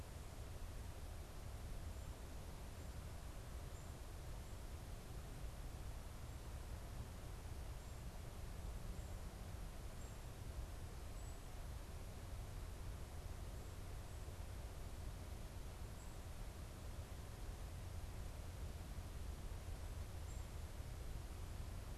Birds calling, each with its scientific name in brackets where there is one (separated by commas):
Black-capped Chickadee (Poecile atricapillus)